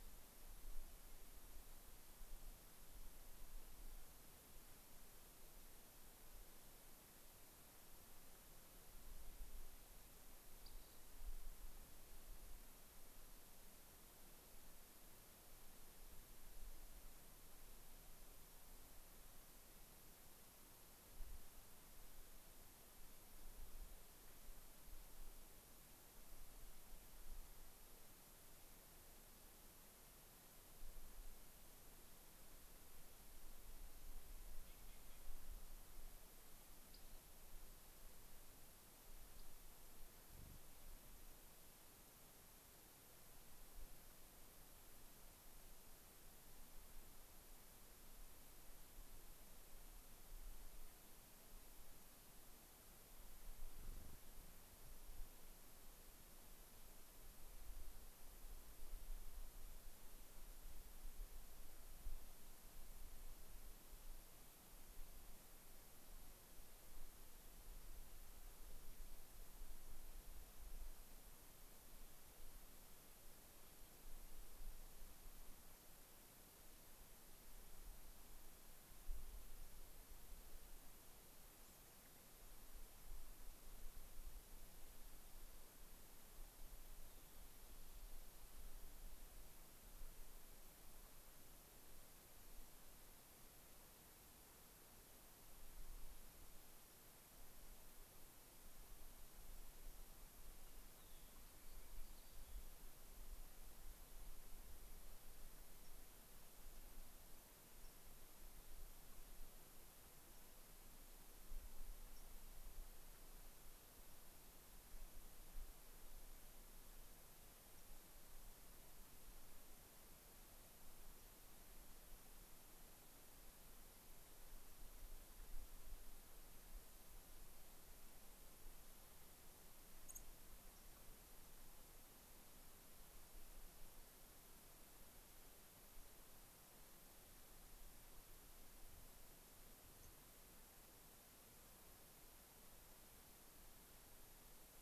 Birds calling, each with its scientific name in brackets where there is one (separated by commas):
Dark-eyed Junco (Junco hyemalis), Rock Wren (Salpinctes obsoletus), Fox Sparrow (Passerella iliaca), American Robin (Turdus migratorius)